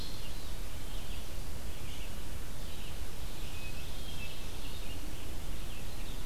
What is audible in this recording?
Red-eyed Vireo, Ovenbird, Hermit Thrush